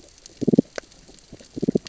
{"label": "biophony, damselfish", "recorder": "SoundTrap 600 or HydroMoth"}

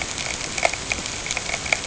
{"label": "ambient", "recorder": "HydroMoth"}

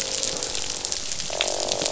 {"label": "biophony, croak", "recorder": "SoundTrap 500"}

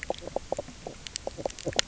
{"label": "biophony, knock croak", "recorder": "SoundTrap 300"}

